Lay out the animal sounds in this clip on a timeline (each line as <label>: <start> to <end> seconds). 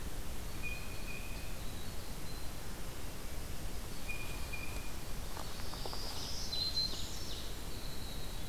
Winter Wren (Troglodytes hiemalis): 0.0 to 4.1 seconds
Blue Jay (Cyanocitta cristata): 0.4 to 1.8 seconds
Blue Jay (Cyanocitta cristata): 3.9 to 4.9 seconds
Black-throated Green Warbler (Setophaga virens): 5.3 to 7.3 seconds
Ovenbird (Seiurus aurocapilla): 5.5 to 7.8 seconds
Winter Wren (Troglodytes hiemalis): 7.6 to 8.5 seconds